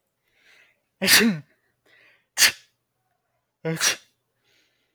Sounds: Sneeze